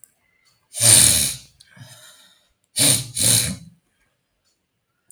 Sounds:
Sniff